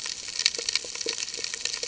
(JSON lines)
{"label": "ambient", "recorder": "HydroMoth"}